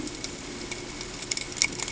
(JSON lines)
{"label": "ambient", "recorder": "HydroMoth"}